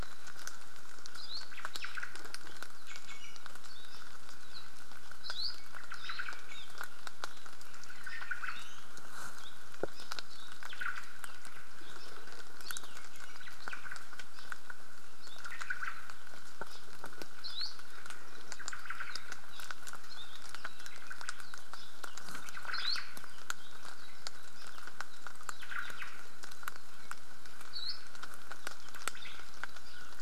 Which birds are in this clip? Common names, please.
Hawaii Akepa, Omao, Iiwi, Apapane